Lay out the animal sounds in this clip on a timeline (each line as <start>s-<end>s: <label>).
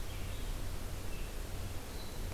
0.0s-2.3s: Red-eyed Vireo (Vireo olivaceus)